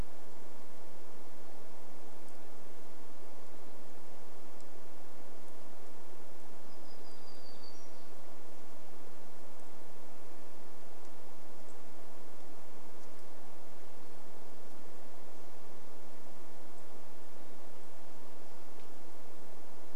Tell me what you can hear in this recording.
warbler song